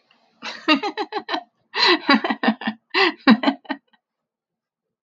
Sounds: Laughter